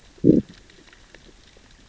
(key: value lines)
label: biophony, growl
recorder: SoundTrap 600 or HydroMoth